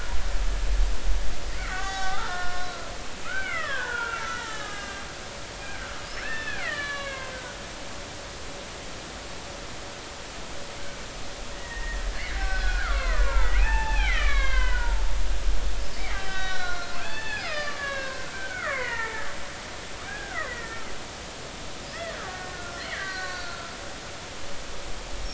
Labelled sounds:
1.6	5.0	killer whale, Bigg's (transient), 0.80 to 7.0 kHz
6.1	7.6	killer whale, Bigg's (transient), 1.1 to 5.5 kHz
11.5	12.0	killer whale, Bigg's (transient), 1.7 to 2.0 kHz
12.3	15.0	killer whale, Bigg's (transient), 0.80 to 5.5 kHz
16.0	19.3	killer whale, Bigg's (transient), 0.80 to 5.2 kHz
20.1	20.8	killer whale, Bigg's (transient), 0.99 to 2.1 kHz
21.9	23.7	killer whale, Bigg's (transient), 1.1 to 4.7 kHz

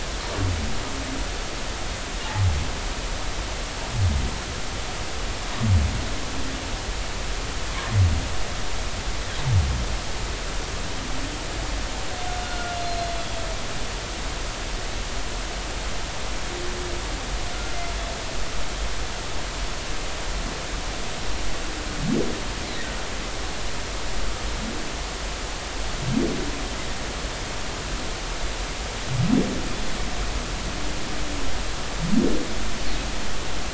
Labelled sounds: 12.4	13.4	humpback whale, 1.4 to 4.2 kHz

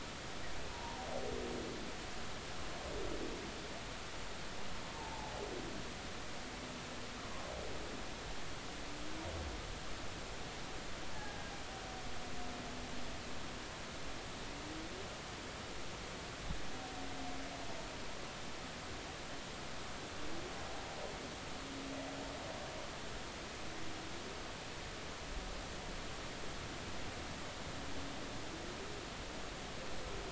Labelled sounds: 0.7	1.0	humpback whale, 0.83 to 1.0 kHz
4.9	5.3	humpback whale, 0.80 to 1.1 kHz
11.1	11.5	humpback whale, 0.80 to 1.8 kHz

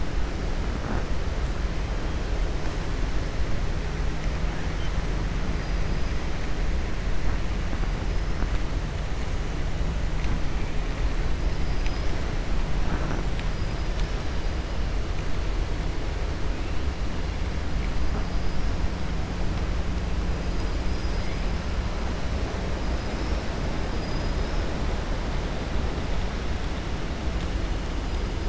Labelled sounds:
23.9	24.6	killer whale, 4.5 to 5.5 kHz

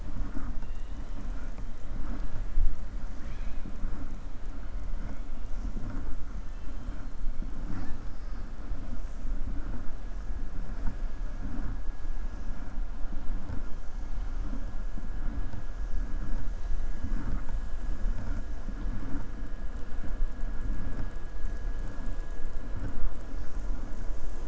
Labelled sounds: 6.4	7.0	killer whale, southern resident, 1.8 to 4.1 kHz

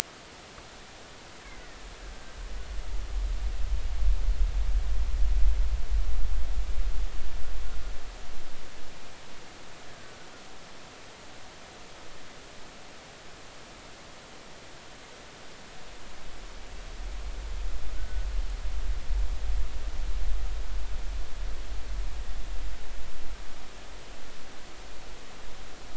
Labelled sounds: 1.4	1.8	killer whale, Bigg's (transient), 1.8 to 2.3 kHz
18.0	18.3	killer whale, Bigg's (transient), 1.4 to 1.6 kHz

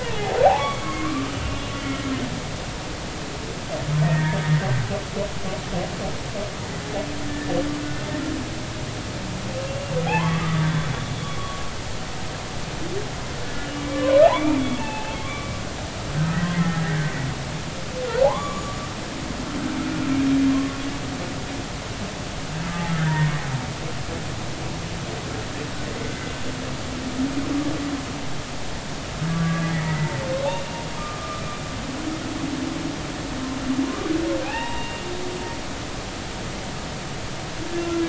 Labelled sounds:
0.0	1.7	humpback whale, 0.80 to 3.4 kHz
4.0	4.4	humpback whale, 1.7 to 1.9 kHz
9.6	10.9	humpback whale, 0.80 to 3.5 kHz
13.8	15.5	humpback whale, 0.80 to 2.8 kHz
16.1	17.1	humpback whale, 1.5 to 2.4 kHz
18.2	18.8	humpback whale, 0.80 to 7.0 kHz
23.0	23.3	humpback whale, 1.8 to 1.9 kHz
26.0	26.3	humpback whale, 1.5 to 1.7 kHz
29.3	31.4	humpback whale, 1.1 to 2.9 kHz
34.4	35.0	humpback whale, 0.80 to 3.8 kHz

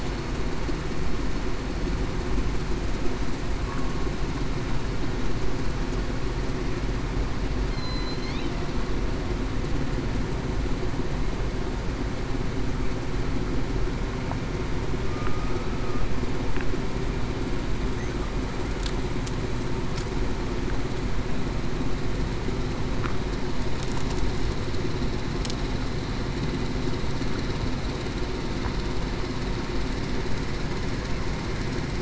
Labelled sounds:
7.8	8.3	killer whale, southern resident, 4.0 to 4.3 kHz
15.0	15.6	killer whale, southern resident, 1.2 to 1.3 kHz

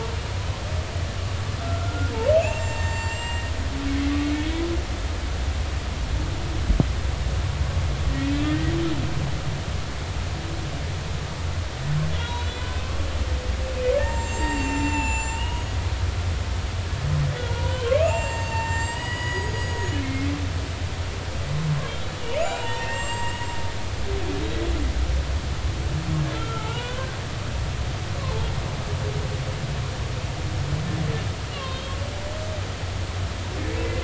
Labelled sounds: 1.6	3.5	humpback whale, 0.86 to 7.6 kHz
8.1	8.7	humpback whale, 1.8 to 2.0 kHz
12.2	12.7	humpback whale, 0.90 to 4.0 kHz
13.9	15.8	humpback whale, 0.80 to 7.5 kHz
17.4	20.2	humpback whale, 0.83 to 7.9 kHz
22.2	24.0	humpback whale, 0.80 to 7.6 kHz
26.3	27.1	humpback whale, 0.83 to 3.2 kHz
31.5	32.0	humpback whale, 0.99 to 3.8 kHz

